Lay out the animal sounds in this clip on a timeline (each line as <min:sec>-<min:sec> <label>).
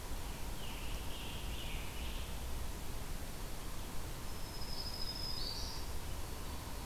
0:00.4-0:02.3 Scarlet Tanager (Piranga olivacea)
0:04.0-0:05.9 Black-throated Green Warbler (Setophaga virens)
0:04.6-0:05.9 Eastern Wood-Pewee (Contopus virens)